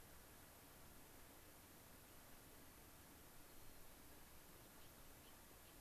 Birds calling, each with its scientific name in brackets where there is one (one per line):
White-crowned Sparrow (Zonotrichia leucophrys)